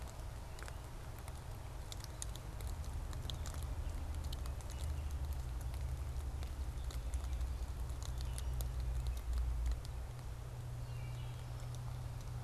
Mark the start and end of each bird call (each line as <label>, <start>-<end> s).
Wood Thrush (Hylocichla mustelina), 10.7-11.5 s